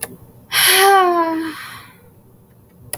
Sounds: Sigh